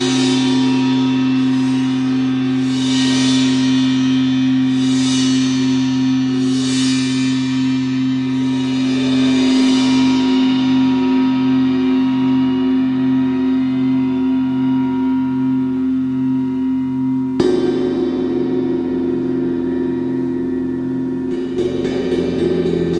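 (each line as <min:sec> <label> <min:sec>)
0:00.0 The sound of a gong fading away after being struck. 0:17.3
0:17.3 A gong is struck followed by a continuous vibrating noise. 0:21.5
0:21.6 A gong is being continuously struck. 0:23.0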